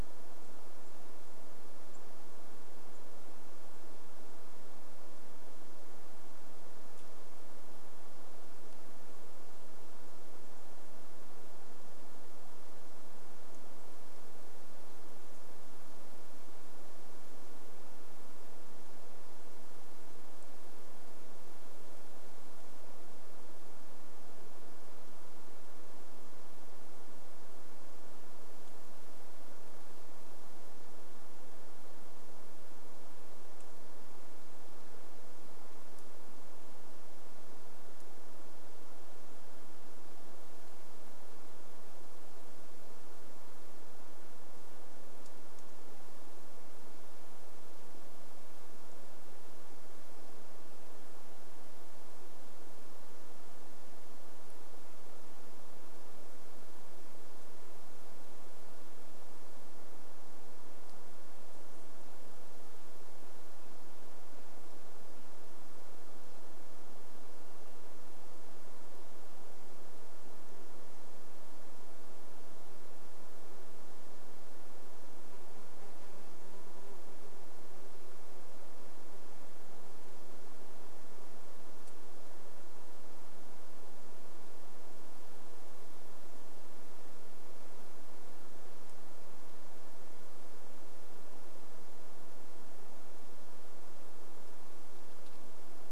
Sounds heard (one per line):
insect buzz
Varied Thrush song
Red-breasted Nuthatch song
unidentified bird chip note